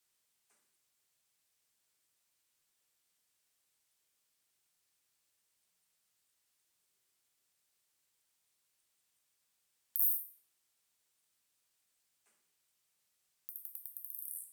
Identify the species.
Isophya modesta